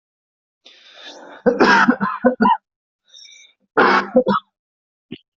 {"expert_labels": [{"quality": "good", "cough_type": "dry", "dyspnea": false, "wheezing": false, "stridor": false, "choking": false, "congestion": false, "nothing": true, "diagnosis": "upper respiratory tract infection", "severity": "mild"}], "age": 33, "gender": "male", "respiratory_condition": true, "fever_muscle_pain": false, "status": "symptomatic"}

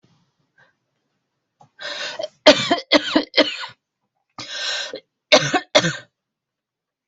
{"expert_labels": [{"quality": "good", "cough_type": "dry", "dyspnea": false, "wheezing": false, "stridor": false, "choking": false, "congestion": false, "nothing": true, "diagnosis": "upper respiratory tract infection", "severity": "mild"}], "age": 34, "gender": "female", "respiratory_condition": false, "fever_muscle_pain": true, "status": "COVID-19"}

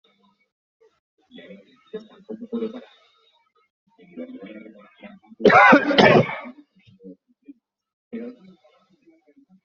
{"expert_labels": [{"quality": "good", "cough_type": "wet", "dyspnea": false, "wheezing": false, "stridor": false, "choking": false, "congestion": false, "nothing": true, "diagnosis": "upper respiratory tract infection", "severity": "mild"}], "age": 50, "gender": "male", "respiratory_condition": false, "fever_muscle_pain": false, "status": "healthy"}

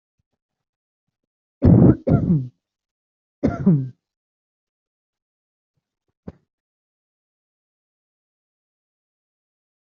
{"expert_labels": [{"quality": "ok", "cough_type": "unknown", "dyspnea": false, "wheezing": false, "stridor": false, "choking": false, "congestion": false, "nothing": true, "diagnosis": "healthy cough", "severity": "pseudocough/healthy cough"}], "age": 26, "gender": "male", "respiratory_condition": false, "fever_muscle_pain": true, "status": "symptomatic"}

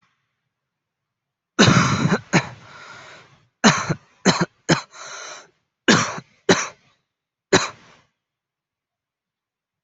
{"expert_labels": [{"quality": "good", "cough_type": "dry", "dyspnea": false, "wheezing": false, "stridor": false, "choking": false, "congestion": false, "nothing": true, "diagnosis": "lower respiratory tract infection", "severity": "mild"}], "age": 18, "gender": "male", "respiratory_condition": false, "fever_muscle_pain": false, "status": "COVID-19"}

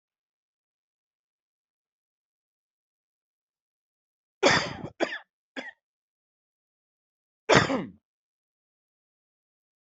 {"expert_labels": [{"quality": "ok", "cough_type": "dry", "dyspnea": false, "wheezing": false, "stridor": false, "choking": false, "congestion": false, "nothing": true, "diagnosis": "upper respiratory tract infection", "severity": "mild"}], "age": 45, "gender": "male", "respiratory_condition": true, "fever_muscle_pain": true, "status": "COVID-19"}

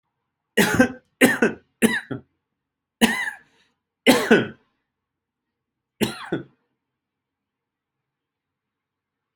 {"expert_labels": [{"quality": "good", "cough_type": "dry", "dyspnea": false, "wheezing": true, "stridor": false, "choking": false, "congestion": false, "nothing": false, "diagnosis": "obstructive lung disease", "severity": "mild"}], "age": 42, "gender": "male", "respiratory_condition": false, "fever_muscle_pain": false, "status": "symptomatic"}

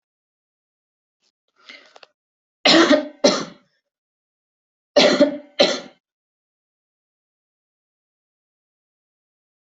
{"expert_labels": [{"quality": "ok", "cough_type": "dry", "dyspnea": false, "wheezing": false, "stridor": false, "choking": false, "congestion": false, "nothing": true, "diagnosis": "lower respiratory tract infection", "severity": "mild"}], "age": 25, "gender": "female", "respiratory_condition": false, "fever_muscle_pain": false, "status": "symptomatic"}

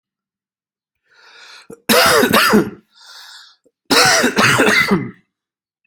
{"expert_labels": [{"quality": "good", "cough_type": "dry", "dyspnea": false, "wheezing": false, "stridor": false, "choking": false, "congestion": false, "nothing": true, "diagnosis": "upper respiratory tract infection", "severity": "unknown"}], "age": 32, "gender": "male", "respiratory_condition": false, "fever_muscle_pain": false, "status": "symptomatic"}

